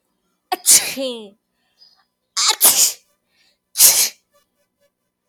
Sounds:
Sneeze